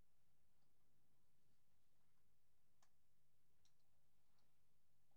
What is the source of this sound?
Steropleurus andalusius, an orthopteran